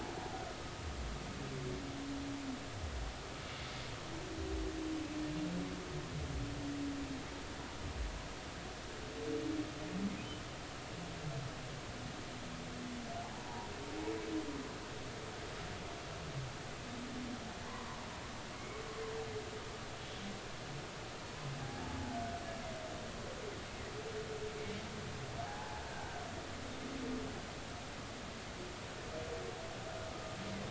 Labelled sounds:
13.3	13.7	humpback whale, 0.83 to 1.1 kHz
18.5	18.8	humpback whale, 2.1 to 2.3 kHz
21.6	22.2	humpback whale, 0.80 to 0.93 kHz
25.4	25.8	humpback whale, 0.80 to 1.1 kHz

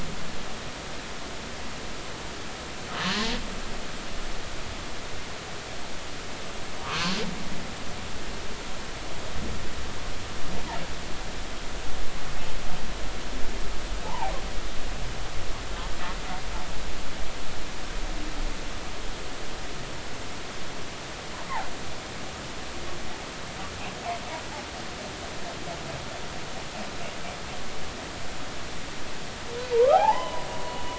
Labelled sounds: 0.3	0.8	humpback whale, 0.83 to 0.99 kHz
6.8	7.2	humpback whale, 0.99 to 1.3 kHz
14.1	14.3	humpback whale, 0.80 to 1.1 kHz
29.7	30.5	humpback whale, 0.80 to 3.1 kHz

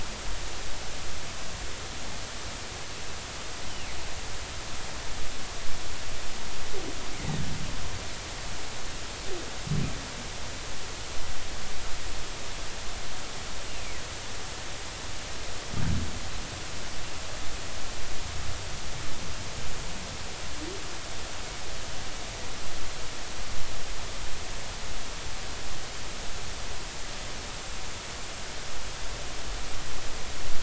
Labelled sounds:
13.7	14.0	humpback whale, 1.9 to 2.9 kHz

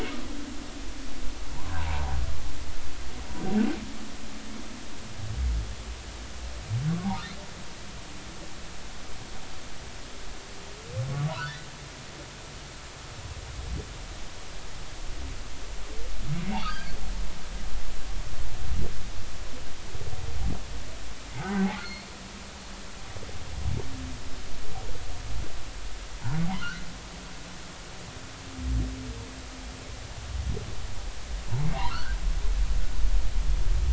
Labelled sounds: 1.8	2.1	humpback whale, 0.80 to 1.1 kHz
11.1	11.6	humpback whale, 1.1 to 1.8 kHz
16.5	16.9	humpback whale, 1.4 to 4.9 kHz
21.3	22.1	humpback whale, 0.80 to 4.5 kHz
31.7	32.2	humpback whale, 0.80 to 2.3 kHz

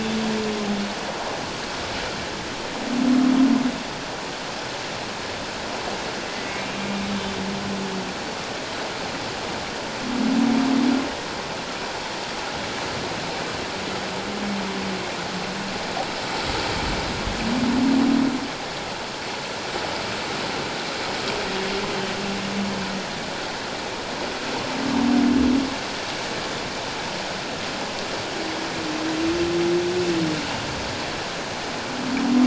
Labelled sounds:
6.3	7.1	humpback whale, 1.9 to 2.4 kHz

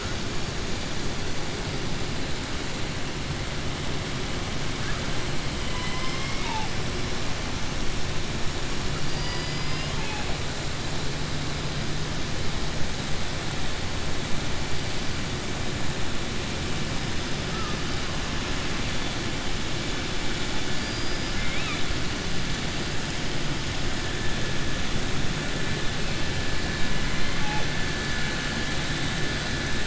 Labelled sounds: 5.6	6.7	killer whale, southern resident, 0.79 to 5.5 kHz
9.6	10.3	killer whale, southern resident, 0.82 to 3.4 kHz
20.7	21.8	killer whale, southern resident, 1.2 to 5.8 kHz

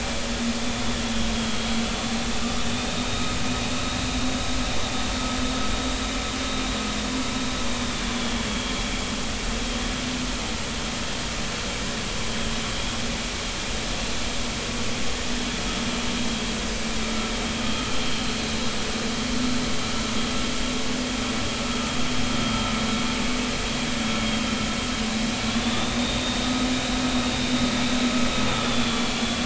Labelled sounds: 2.6	3.3	vessel noise, 3.5 to 3.8 kHz
8.0	8.9	vessel noise, 3.1 to 3.5 kHz
25.5	27.0	vessel noise, 3.3 to 3.8 kHz
28.5	29.4	vessel noise, 3.2 to 3.6 kHz

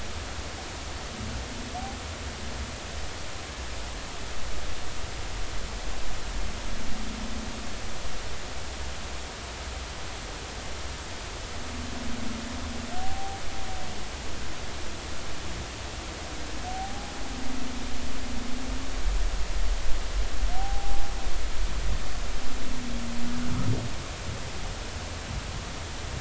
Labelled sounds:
13.0	13.4	humpback whale, 0.80 to 0.83 kHz
16.7	17.1	humpback whale, 0.80 to 0.86 kHz
20.5	21.1	humpback whale, 0.80 to 0.90 kHz

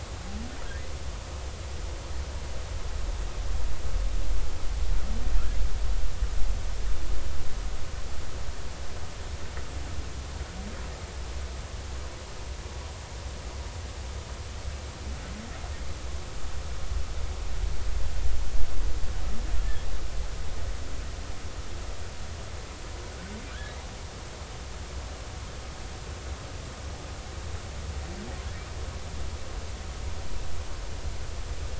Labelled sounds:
23.5	23.7	humpback whale, 1.4 to 1.8 kHz

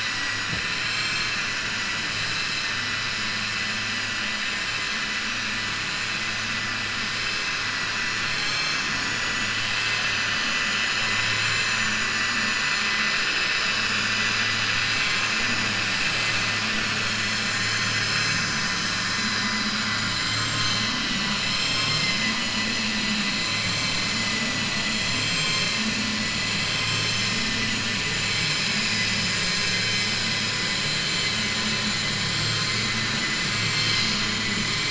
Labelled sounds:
14.8	15.3	vessel noise, 1.1 to 4.2 kHz
20.1	20.8	vessel noise, 5.5 to 7.4 kHz
24.9	25.8	vessel noise, 6.2 to 7.7 kHz

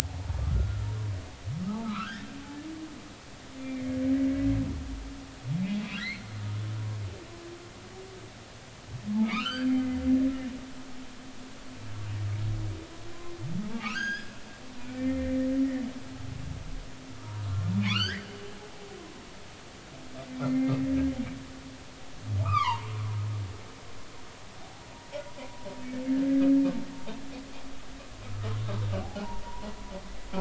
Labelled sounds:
0.5	0.9	humpback whale, 1.3 to 1.5 kHz
1.8	2.3	humpback whale, 0.96 to 1.9 kHz
3.6	4.0	humpback whale, 2.0 to 2.3 kHz
6.0	7.3	humpback whale, 1.5 to 4.4 kHz
9.2	10.0	humpback whale, 0.93 to 4.8 kHz
13.7	15.4	humpback whale, 1.1 to 6.8 kHz
17.1	17.4	humpback whale, 1.2 to 1.4 kHz
17.8	18.3	humpback whale, 0.96 to 5.2 kHz
20.4	20.8	humpback whale, 2.0 to 2.2 kHz
22.4	22.9	humpback whale, 0.83 to 3.8 kHz
28.3	28.6	humpback whale, 1.2 to 1.3 kHz
29.4	30.4	humpback whale, 0.80 to 1.1 kHz

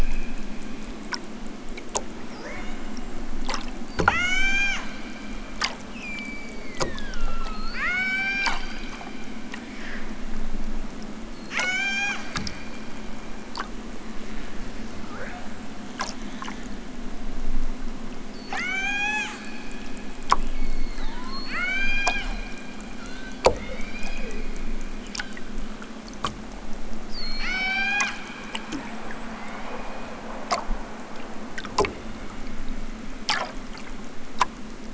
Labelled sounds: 2.2	3.3	killer whale, southern Alaska resident, 0.55 to 8.0 kHz
3.7	4.9	killer whale, southern Alaska resident, 0.46 to 8.0 kHz
5.8	8.7	killer whale, southern Alaska resident, 0.28 to 8.0 kHz
11.3	12.3	killer whale, southern Alaska resident, 0.32 to 8.0 kHz
14.9	15.7	killer whale, southern Alaska resident, 0.50 to 7.0 kHz
18.2	19.5	killer whale, southern Alaska resident, 0.37 to 8.0 kHz
20.4	22.3	killer whale, southern Alaska resident, 0.50 to 8.0 kHz
22.9	24.5	killer whale, southern Alaska resident, 0.83 to 6.0 kHz
27.0	28.3	killer whale, southern Alaska resident, 0.55 to 8.0 kHz
28.6	30.3	killer whale, southern Alaska resident, 0.50 to 7.0 kHz
31.9	32.6	killer whale, southern Alaska resident, 0.92 to 3.9 kHz

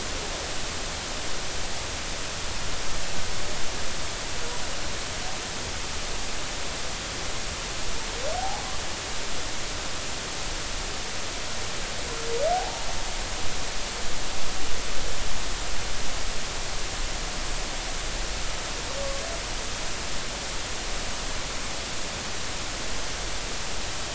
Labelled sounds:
8.4	8.7	humpback whale, 0.80 to 0.99 kHz
12.5	12.9	humpback whale, 0.80 to 0.96 kHz

